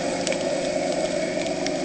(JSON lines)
{"label": "anthrophony, boat engine", "recorder": "HydroMoth"}